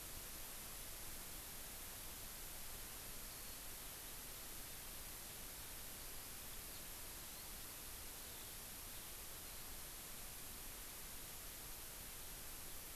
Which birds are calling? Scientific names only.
Alauda arvensis